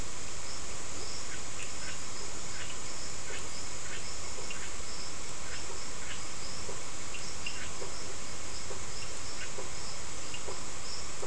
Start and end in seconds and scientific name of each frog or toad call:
0.8	1.1	Leptodactylus latrans
1.1	6.3	Scinax perereca
2.0	11.2	Boana prasina
7.9	8.3	Leptodactylus latrans
9.3	9.7	Scinax perereca